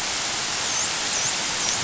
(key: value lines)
label: biophony, dolphin
recorder: SoundTrap 500